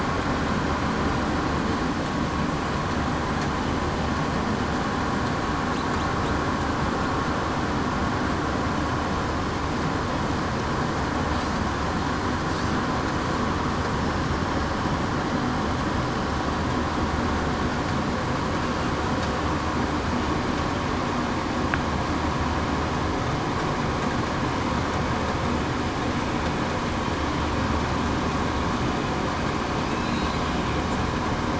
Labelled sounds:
29.9	30.2	killer whale, southern resident, 3.9 to 4.2 kHz

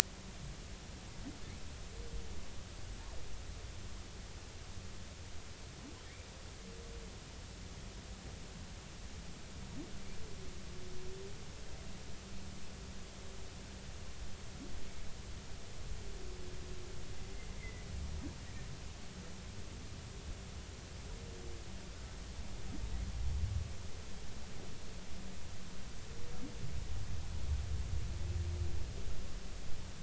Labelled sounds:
17.6	17.9	humpback whale, 1.9 to 2.2 kHz

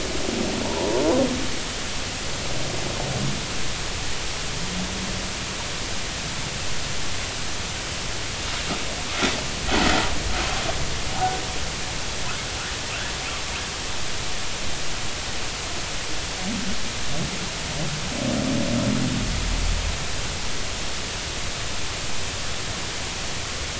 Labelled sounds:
0.6	1.0	humpback whale, 0.83 to 1.2 kHz

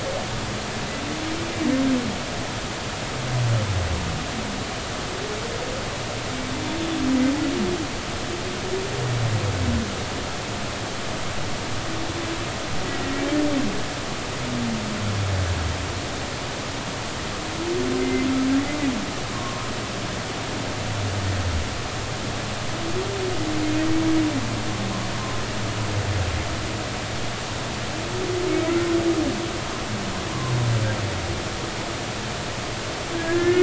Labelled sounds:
18.0	18.3	humpback whale, 2.0 to 2.1 kHz
19.3	19.7	humpback whale, 0.99 to 1.1 kHz
33.1	33.6	humpback whale, 1.6 to 2.2 kHz

